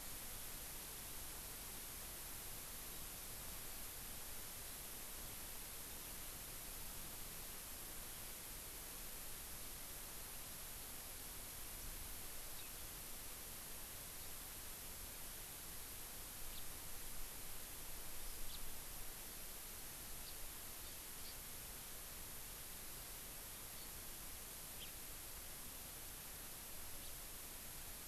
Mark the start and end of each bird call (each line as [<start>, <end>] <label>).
[16.50, 16.60] House Finch (Haemorhous mexicanus)
[18.20, 18.40] Hawaii Amakihi (Chlorodrepanis virens)
[18.40, 18.60] House Finch (Haemorhous mexicanus)
[20.20, 20.40] House Finch (Haemorhous mexicanus)
[20.80, 21.30] Hawaii Amakihi (Chlorodrepanis virens)